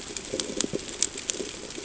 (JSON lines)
{"label": "ambient", "recorder": "HydroMoth"}